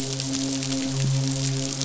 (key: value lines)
label: biophony, midshipman
recorder: SoundTrap 500